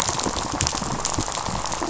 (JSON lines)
{"label": "biophony, rattle", "recorder": "SoundTrap 500"}